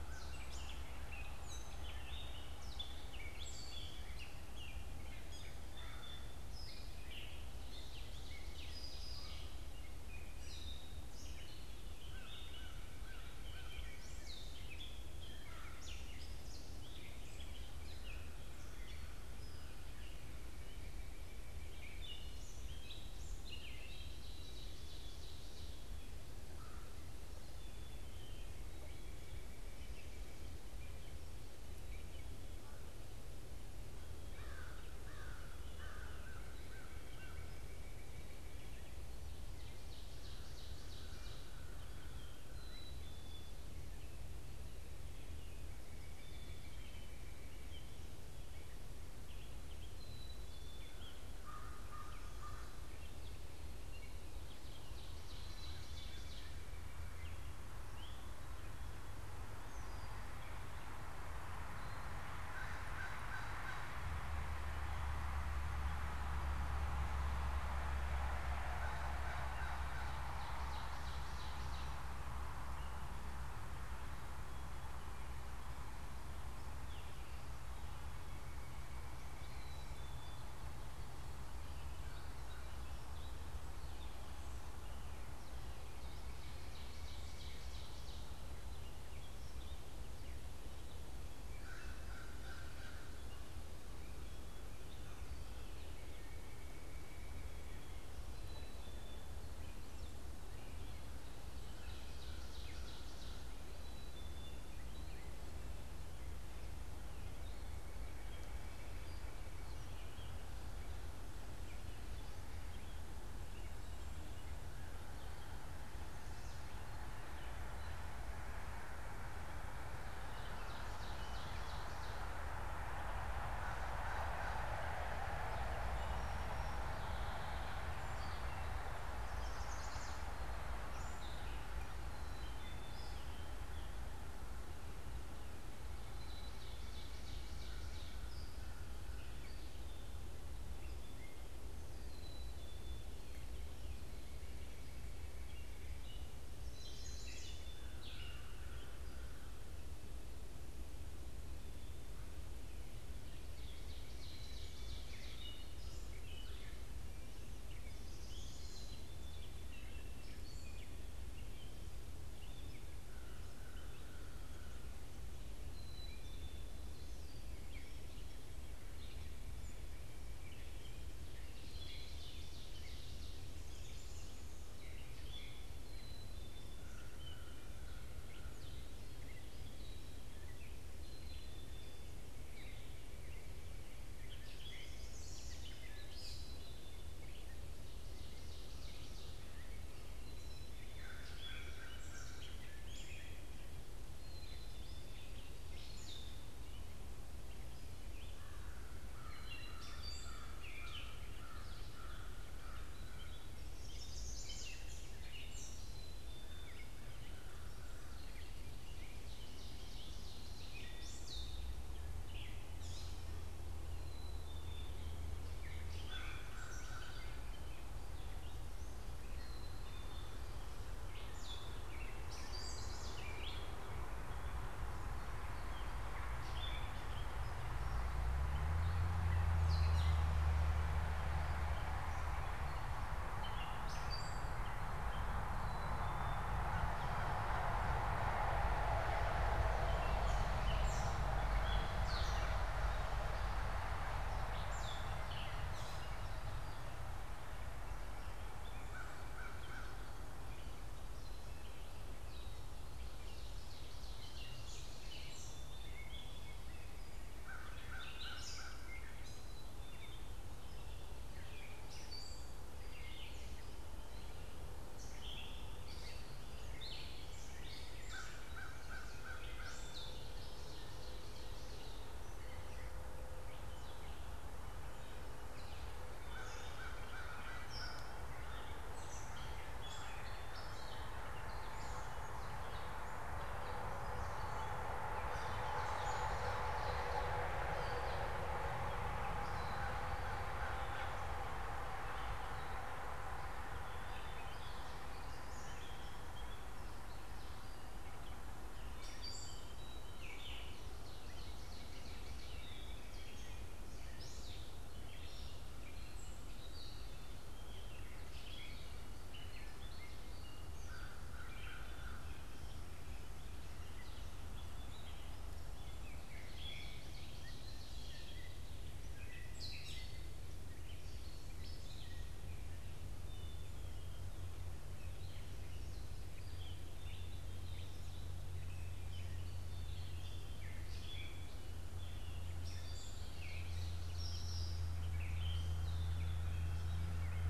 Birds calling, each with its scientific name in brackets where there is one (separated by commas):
Chestnut-sided Warbler (Setophaga pensylvanica), Song Sparrow (Melospiza melodia), American Crow (Corvus brachyrhynchos), Gray Catbird (Dumetella carolinensis), Northern Cardinal (Cardinalis cardinalis), Black-capped Chickadee (Poecile atricapillus), Ovenbird (Seiurus aurocapilla)